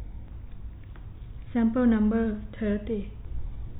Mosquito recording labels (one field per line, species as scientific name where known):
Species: no mosquito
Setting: cup